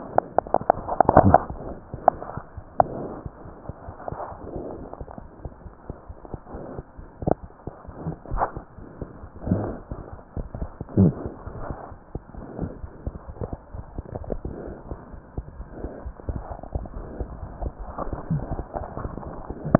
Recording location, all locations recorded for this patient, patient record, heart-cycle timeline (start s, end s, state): aortic valve (AV)
aortic valve (AV)+mitral valve (MV)
#Age: Infant
#Sex: Male
#Height: nan
#Weight: nan
#Pregnancy status: False
#Murmur: Unknown
#Murmur locations: nan
#Most audible location: nan
#Systolic murmur timing: nan
#Systolic murmur shape: nan
#Systolic murmur grading: nan
#Systolic murmur pitch: nan
#Systolic murmur quality: nan
#Diastolic murmur timing: nan
#Diastolic murmur shape: nan
#Diastolic murmur grading: nan
#Diastolic murmur pitch: nan
#Diastolic murmur quality: nan
#Outcome: Abnormal
#Campaign: 2015 screening campaign
0.00	5.64	unannotated
5.64	5.69	S1
5.69	5.87	systole
5.87	5.92	S2
5.92	6.08	diastole
6.08	6.13	S1
6.13	6.32	systole
6.32	6.37	S2
6.37	6.53	diastole
6.53	6.57	S1
6.57	6.77	systole
6.77	6.81	S2
6.81	6.99	diastole
6.99	7.06	S1
7.06	7.21	systole
7.21	7.25	S2
7.25	7.42	diastole
7.42	7.48	S1
7.48	7.66	systole
7.66	7.70	S2
7.70	7.87	diastole
7.87	7.92	S1
7.92	8.10	systole
8.10	8.15	S2
8.15	8.76	unannotated
8.76	8.84	S1
8.84	9.00	systole
9.00	9.06	S2
9.06	9.22	diastole
9.22	9.29	S1
9.29	19.79	unannotated